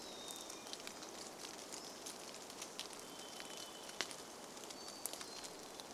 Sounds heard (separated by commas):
rain, Hermit Thrush song, Pacific-slope Flycatcher song, Varied Thrush song